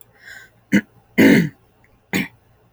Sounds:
Throat clearing